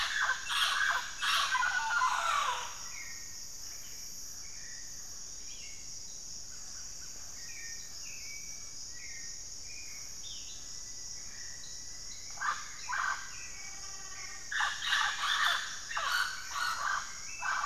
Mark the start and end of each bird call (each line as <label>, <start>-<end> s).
Hauxwell's Thrush (Turdus hauxwelli), 0.0-17.7 s
Mealy Parrot (Amazona farinosa), 0.0-17.7 s
Euler's Flycatcher (Lathrotriccus euleri), 10.0-10.9 s
Rufous-fronted Antthrush (Formicarius rufifrons), 10.5-15.4 s